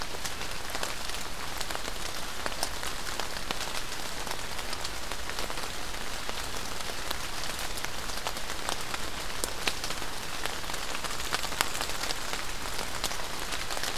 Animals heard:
forest ambience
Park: Marsh-Billings-Rockefeller National Historical Park